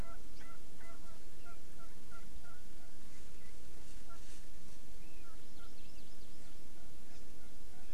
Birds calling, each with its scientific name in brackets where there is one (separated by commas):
Erckel's Francolin (Pternistis erckelii), Hawaii Amakihi (Chlorodrepanis virens)